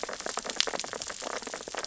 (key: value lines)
label: biophony, sea urchins (Echinidae)
recorder: SoundTrap 600 or HydroMoth